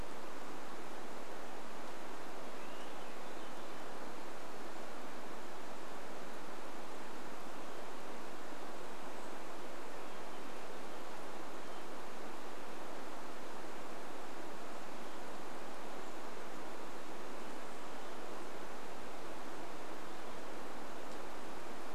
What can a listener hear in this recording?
Swainson's Thrush call, unidentified sound